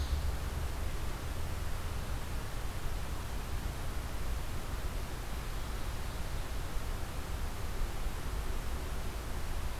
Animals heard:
forest ambience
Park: Marsh-Billings-Rockefeller National Historical Park